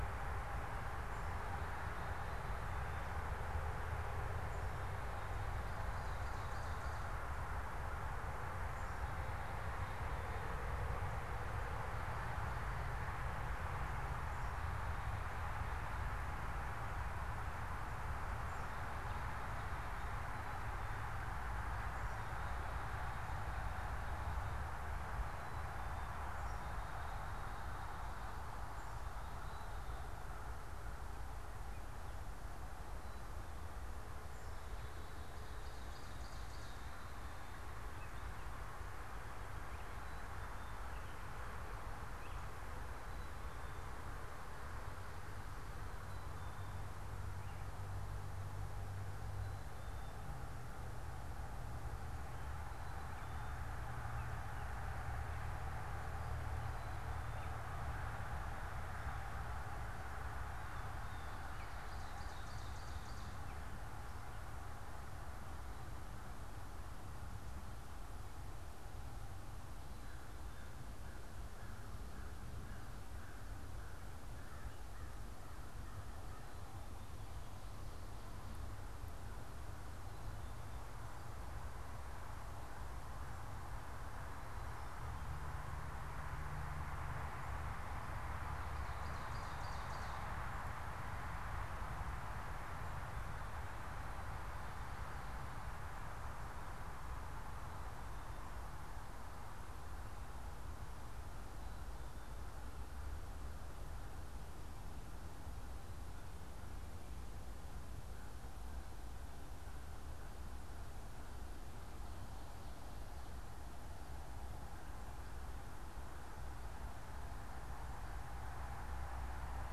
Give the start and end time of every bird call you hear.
[35.20, 37.00] Ovenbird (Seiurus aurocapilla)
[37.40, 43.80] American Robin (Turdus migratorius)
[41.10, 50.90] Black-capped Chickadee (Poecile atricapillus)
[52.50, 60.40] American Robin (Turdus migratorius)
[61.30, 63.40] Ovenbird (Seiurus aurocapilla)
[69.70, 77.10] American Crow (Corvus brachyrhynchos)
[88.80, 90.40] Ovenbird (Seiurus aurocapilla)
[107.90, 118.20] American Crow (Corvus brachyrhynchos)

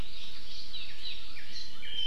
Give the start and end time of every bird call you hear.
[0.00, 1.60] Hawaii Amakihi (Chlorodrepanis virens)
[1.20, 2.07] Northern Cardinal (Cardinalis cardinalis)

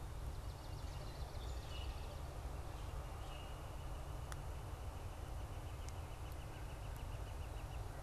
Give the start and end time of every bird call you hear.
[0.00, 2.50] Swamp Sparrow (Melospiza georgiana)
[1.50, 2.10] Common Grackle (Quiscalus quiscula)
[2.30, 8.00] Northern Flicker (Colaptes auratus)

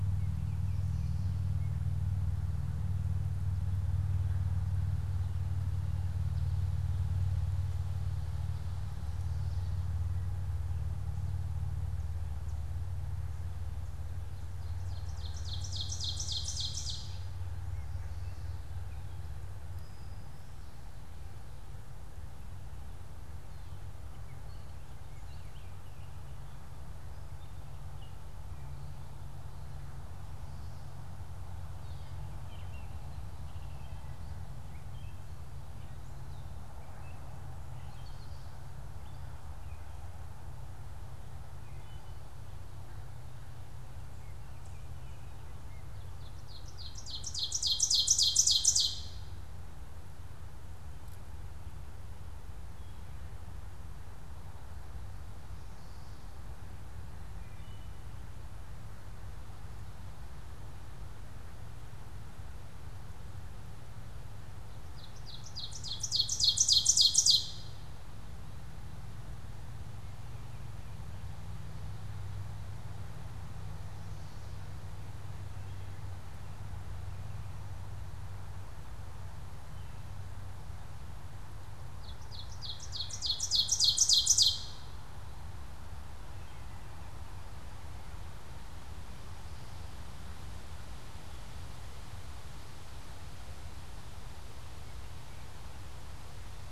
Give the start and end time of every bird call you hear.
[4.84, 10.14] American Goldfinch (Spinus tristis)
[14.24, 17.64] Ovenbird (Seiurus aurocapilla)
[19.55, 21.05] Brown-headed Cowbird (Molothrus ater)
[23.95, 42.45] Gray Catbird (Dumetella carolinensis)
[45.95, 49.65] Ovenbird (Seiurus aurocapilla)
[57.24, 58.05] Wood Thrush (Hylocichla mustelina)
[64.75, 68.05] Ovenbird (Seiurus aurocapilla)
[81.64, 85.25] Ovenbird (Seiurus aurocapilla)

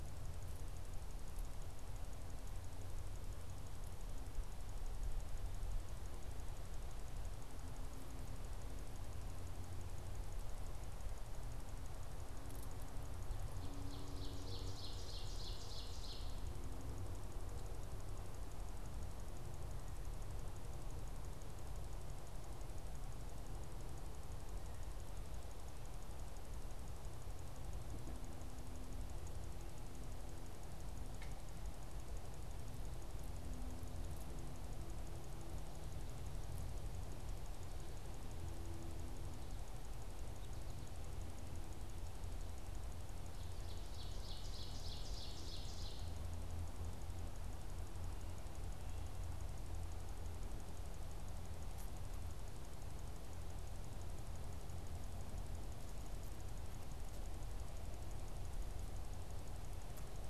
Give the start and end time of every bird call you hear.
[13.28, 16.38] Ovenbird (Seiurus aurocapilla)
[40.08, 41.28] American Goldfinch (Spinus tristis)
[43.18, 46.18] Ovenbird (Seiurus aurocapilla)

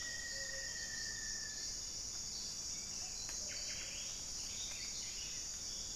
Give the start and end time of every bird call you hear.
[0.00, 2.31] Rufous-fronted Antthrush (Formicarius rufifrons)
[0.00, 5.96] Gray-fronted Dove (Leptotila rufaxilla)

